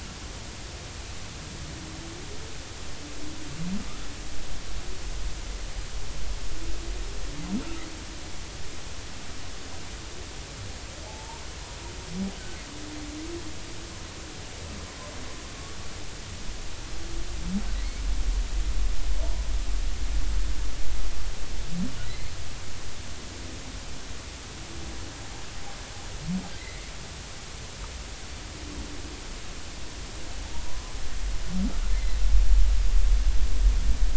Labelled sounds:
11.0	11.4	humpback whale, 0.80 to 0.99 kHz
22.1	22.3	humpback whale, 1.9 to 2.2 kHz
26.6	26.8	humpback whale, 1.9 to 2.1 kHz
30.6	30.9	humpback whale, 0.96 to 1.1 kHz
31.9	32.2	humpback whale, 1.8 to 2.1 kHz

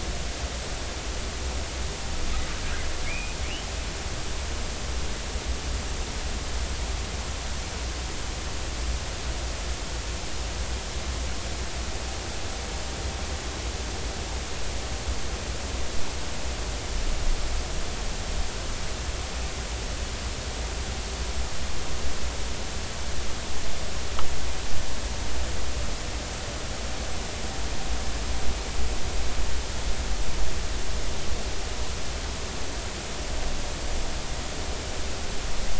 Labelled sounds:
3.1	3.4	humpback whale, 2.1 to 2.6 kHz

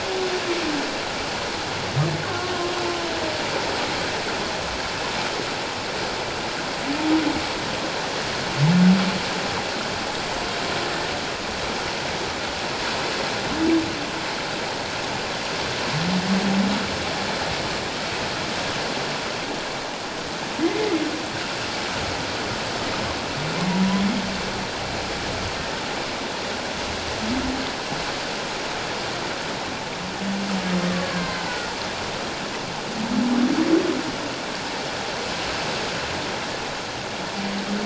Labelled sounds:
2.2	2.5	humpback whale, 1.0 to 1.2 kHz
20.6	20.9	humpback whale, 2.0 to 2.2 kHz
31.0	31.5	killer whale, Bigg's (transient), 1.5 to 4.5 kHz

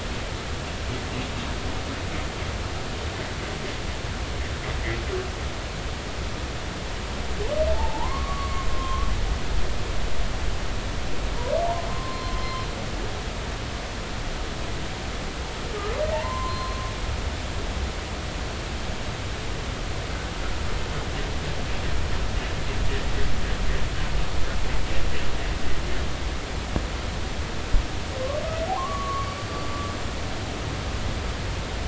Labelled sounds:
7.7	9.1	humpback whale, 0.83 to 1.2 kHz
11.9	12.4	humpback whale, 0.99 to 4.2 kHz
16.0	16.8	humpback whale, 0.83 to 4.2 kHz
28.7	29.3	humpback whale, 0.80 to 1.2 kHz

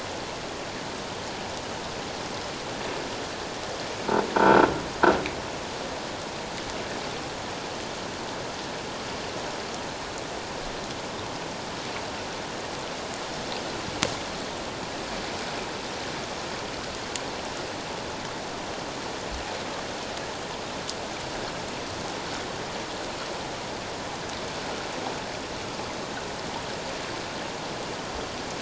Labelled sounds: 4.3	4.7	croaking sound likely from a nearby submerged object, 1.3 to 1.6 kHz

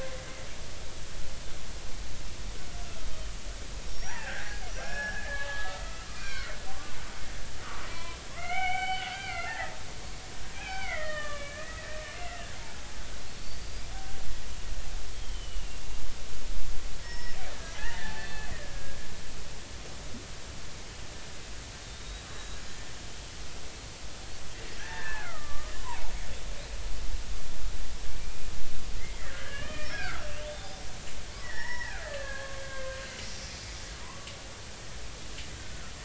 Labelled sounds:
2.9	7.0	killer whale, Bigg's (transient), 0.80 to 5.9 kHz
7.6	9.8	killer whale, Bigg's (transient), 0.80 to 4.6 kHz
10.5	12.6	killer whale, Bigg's (transient), 0.80 to 3.1 kHz
13.3	14.2	killer whale, Bigg's (transient), 1.5 to 4.9 kHz
15.1	15.8	killer whale, Bigg's (transient), 2.7 to 3.3 kHz
17.0	19.0	killer whale, Bigg's (transient), 0.80 to 5.5 kHz
21.8	22.6	killer whale, Bigg's (transient), 3.6 to 4.0 kHz
24.8	26.1	killer whale, Bigg's (transient), 0.80 to 2.2 kHz
28.2	28.5	killer whale, Bigg's (transient), 2.3 to 2.5 kHz
29.0	30.8	killer whale, Bigg's (transient), 0.80 to 3.7 kHz
31.4	33.0	killer whale, Bigg's (transient), 0.80 to 5.5 kHz
33.5	34.3	killer whale, Bigg's (transient), 0.93 to 2.5 kHz

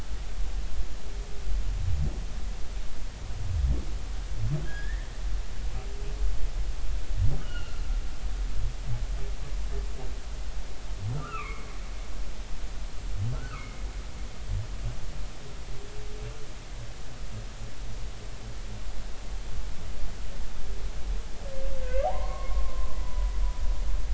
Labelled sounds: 4.6	5.1	humpback whale, 1.4 to 3.5 kHz
7.4	7.8	humpback whale, 1.2 to 3.0 kHz
11.1	11.7	humpback whale, 1.0 to 2.8 kHz
13.3	13.8	humpback whale, 0.99 to 2.3 kHz
21.8	23.3	humpback whale, 0.80 to 1.7 kHz

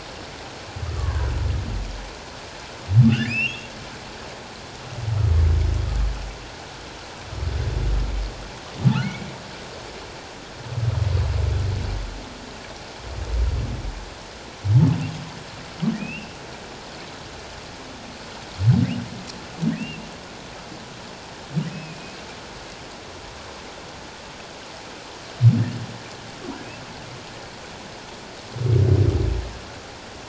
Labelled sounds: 3.2	3.7	humpback whale, 1.9 to 5.6 kHz
16.0	16.3	humpback whale, 2.3 to 2.9 kHz
21.7	22.2	humpback whale, 2.4 to 2.7 kHz

